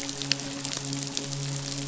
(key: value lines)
label: biophony, midshipman
recorder: SoundTrap 500